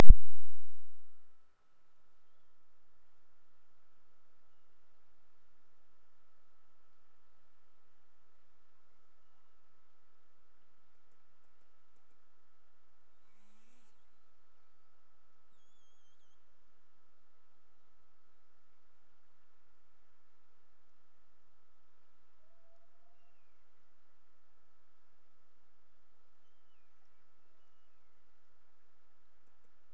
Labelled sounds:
9.1	10.8	killer whale, Bigg's (transient), Gulf of Alaska transient, 1.8 to 2.9 kHz
23.0	24.5	killer whale, Bigg's (transient), Gulf of Alaska transient, 1.6 to 2.9 kHz
26.4	28.6	killer whale, Bigg's (transient), Gulf of Alaska transient, 1.8 to 3.3 kHz

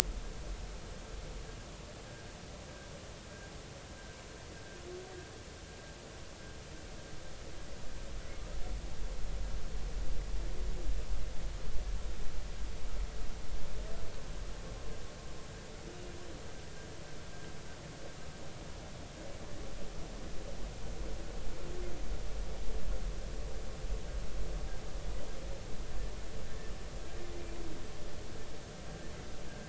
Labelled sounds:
2.1	2.3	vessel noise, 1.5 to 1.7 kHz

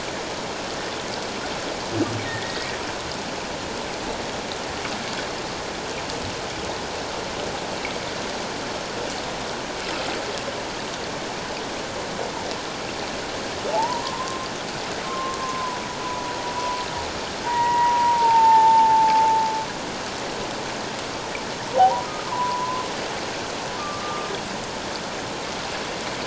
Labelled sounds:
2.3	2.7	humpback whale, 1.8 to 1.9 kHz
13.7	14.4	humpback whale, 0.78 to 1.1 kHz
15.1	16.3	humpback whale, 0.91 to 1.1 kHz
17.4	19.3	humpback whale, 0.78 to 2.0 kHz
21.8	22.8	humpback whale, 0.78 to 1.4 kHz
23.8	24.3	humpback whale, 1.1 to 1.2 kHz

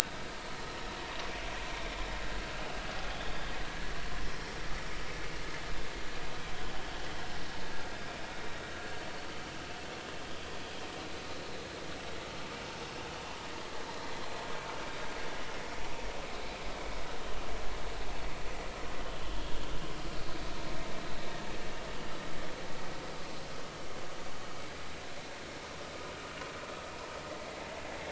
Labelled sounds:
16.3	16.6	vessel noise, 3.9 to 4.1 kHz

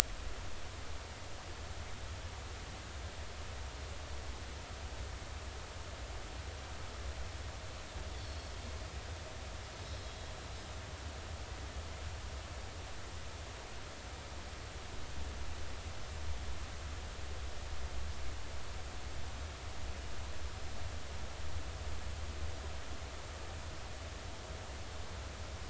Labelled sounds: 8.2	8.5	Pacific white-sided dolphin, 4.3 to 4.6 kHz
9.8	10.3	Pacific white-sided dolphin, 3.3 to 5.2 kHz

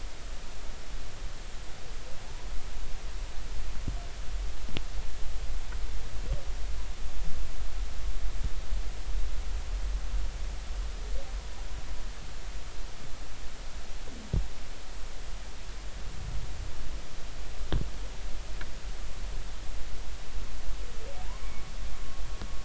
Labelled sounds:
21.2	21.4	humpback whale, 0.80 to 1.1 kHz

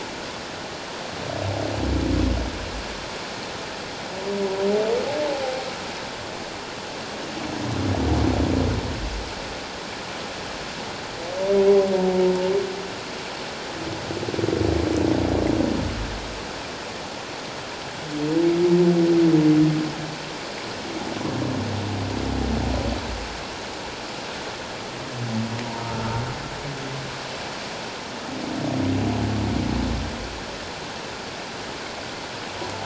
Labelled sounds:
25.6	26.2	humpback whale, 0.88 to 1.4 kHz

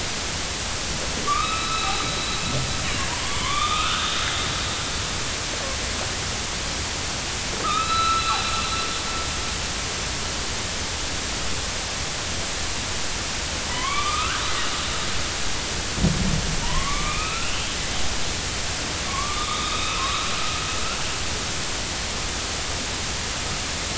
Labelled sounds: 1.3	2.0	killer whale, northern resident, A clan, AB subclan, 1.1 to 4.0 kHz
2.8	3.1	killer whale, northern resident, A clan, AB subclan, 2.7 to 3.0 kHz
3.4	4.2	killer whale, northern resident, A clan, AB subclan, 0.96 to 3.8 kHz
7.6	9.0	killer whale, northern resident, A clan, AB subclan, 1.2 to 4.1 kHz
13.7	14.4	killer whale, northern resident, A clan, AB subclan, 0.93 to 3.6 kHz
16.6	17.7	killer whale, northern resident, A clan, AB subclan, 0.90 to 3.3 kHz
19.1	20.3	killer whale, northern resident, A clan, AB subclan, 0.99 to 4.0 kHz

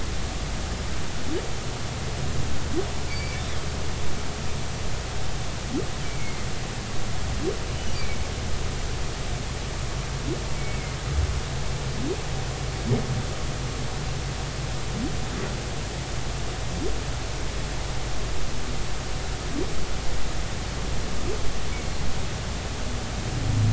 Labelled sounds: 3.1	3.4	humpback whale, 2.2 to 4.7 kHz
6.0	6.5	humpback whale, 2.0 to 2.3 kHz
7.9	8.2	humpback whale, 2.2 to 2.5 kHz
10.6	10.8	humpback whale, 2.2 to 2.3 kHz

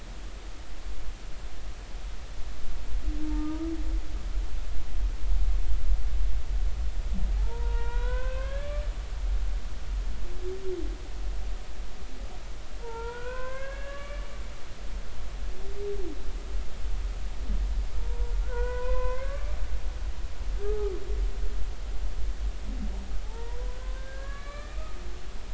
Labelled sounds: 3.3	3.7	humpback whale, 0.86 to 1.3 kHz
7.4	8.9	humpback whale, 0.80 to 4.0 kHz
12.8	14.3	humpback whale, 0.86 to 2.9 kHz
18.0	19.6	humpback whale, 0.90 to 2.6 kHz
20.6	20.9	humpback whale, 0.80 to 1.3 kHz
23.2	25.0	humpback whale, 0.80 to 4.2 kHz

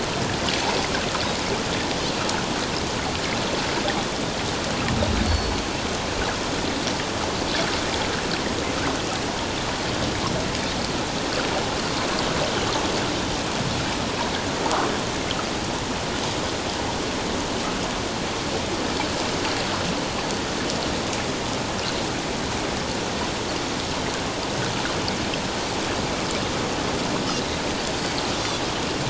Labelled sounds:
5.2	5.6	Pacific white-sided dolphin, 4.3 to 4.5 kHz
28.3	28.6	Pacific white-sided dolphin, 3.3 to 5.9 kHz

